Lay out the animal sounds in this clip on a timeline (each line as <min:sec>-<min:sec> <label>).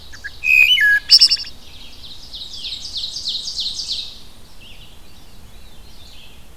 0:00.0-0:00.8 Ovenbird (Seiurus aurocapilla)
0:00.0-0:01.8 Wood Thrush (Hylocichla mustelina)
0:00.0-0:06.6 Red-eyed Vireo (Vireo olivaceus)
0:01.5-0:04.2 Ovenbird (Seiurus aurocapilla)
0:01.8-0:04.6 Black-and-white Warbler (Mniotilta varia)
0:02.4-0:02.8 Veery (Catharus fuscescens)
0:04.7-0:06.3 Veery (Catharus fuscescens)